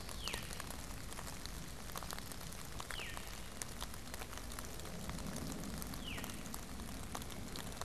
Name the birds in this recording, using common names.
Veery